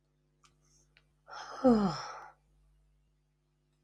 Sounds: Sigh